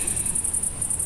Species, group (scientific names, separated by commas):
Tettigonia viridissima, Orthoptera